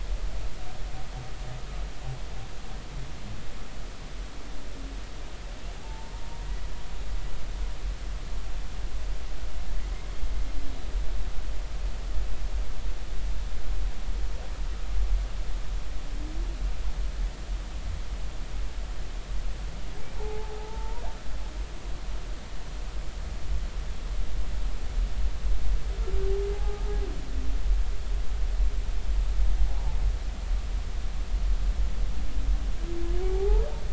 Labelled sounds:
5.8	6.1	humpback whale, 0.83 to 0.96 kHz
20.2	21.0	humpback whale, 0.80 to 1.0 kHz
26.5	26.8	humpback whale, 0.80 to 0.90 kHz
33.3	33.7	humpback whale, 0.80 to 0.99 kHz

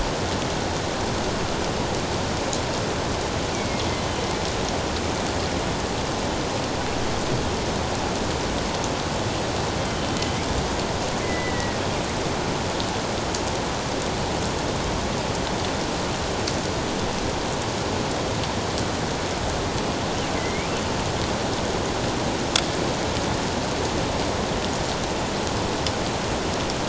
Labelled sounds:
3.5	3.8	killer whale, northern resident, A clan, AA subclan, A04 pod, 2.1 to 2.4 kHz
9.9	10.4	killer whale, northern resident, A clan, AA subclan, A04 pod, 3.0 to 3.2 kHz
11.2	11.8	killer whale, northern resident, A clan, AA subclan, A04 pod, 1.8 to 2.1 kHz
20.4	20.7	killer whale, northern resident, A clan, AA subclan, A04 pod, 1.9 to 2.5 kHz

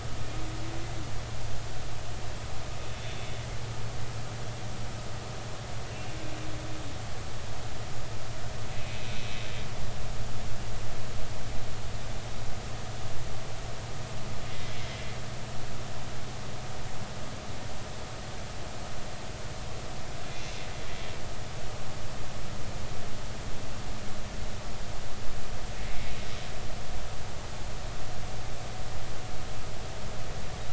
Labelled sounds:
3.0	3.3	humpback whale, 3.5 to 3.6 kHz
5.9	6.1	humpback whale, 2.6 to 2.8 kHz
8.7	9.3	humpback whale, 2.5 to 2.7 kHz
14.5	14.8	humpback whale, 2.0 to 2.1 kHz

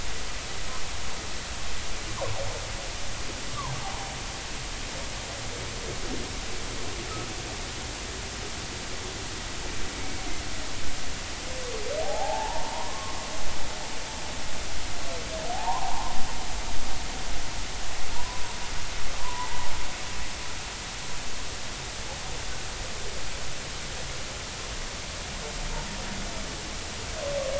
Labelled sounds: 3.8	4.0	humpback whale, 0.80 to 1.1 kHz
9.9	10.3	humpback whale, 2.2 to 2.3 kHz
12.0	13.1	humpback whale, 0.80 to 1.2 kHz
15.5	16.1	humpback whale, 0.80 to 1.1 kHz
18.1	18.4	humpback whale, 0.90 to 1.1 kHz
19.2	19.7	humpback whale, 0.83 to 2.0 kHz

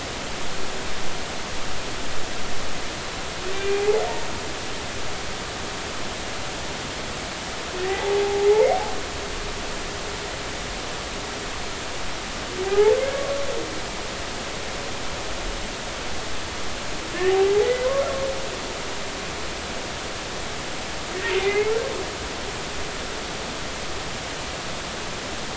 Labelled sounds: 3.5	4.0	humpback whale, 0.80 to 2.5 kHz
7.8	8.5	humpback whale, 0.80 to 2.0 kHz
12.6	12.9	humpback whale, 0.80 to 0.93 kHz
17.6	17.9	humpback whale, 1.9 to 2.0 kHz
21.4	21.7	humpback whale, 2.0 to 2.2 kHz

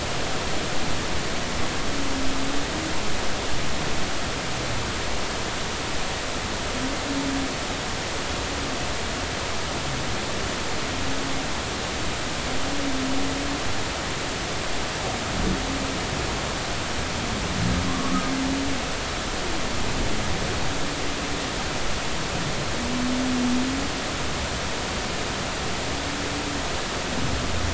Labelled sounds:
17.9	18.2	humpback whale, 1.0 to 1.2 kHz

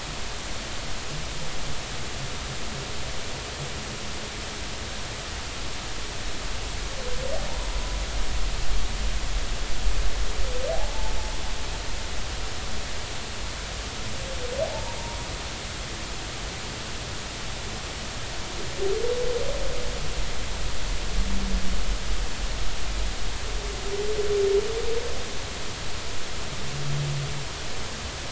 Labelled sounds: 14.6	15.0	humpback whale, 0.80 to 0.99 kHz

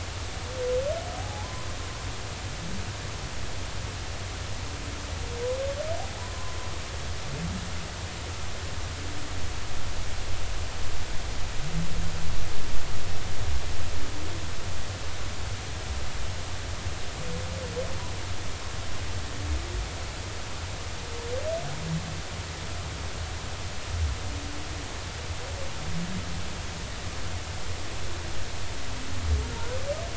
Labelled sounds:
1.2	1.7	humpback whale, 0.80 to 1.1 kHz
6.2	6.6	humpback whale, 0.96 to 1.2 kHz

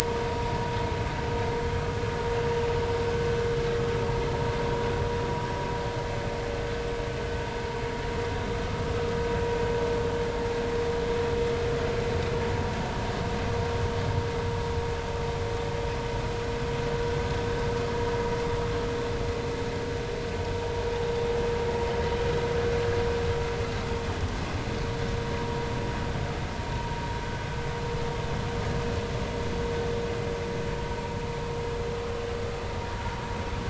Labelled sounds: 1.0	1.6	vessel noise, 0.90 to 1.0 kHz

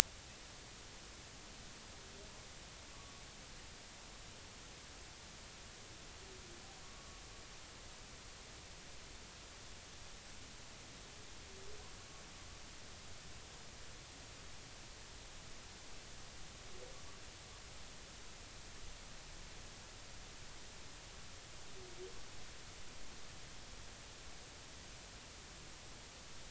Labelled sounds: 2.9	3.2	humpback whale, 1.1 to 1.2 kHz
6.8	7.2	humpback whale, 1.1 to 1.2 kHz

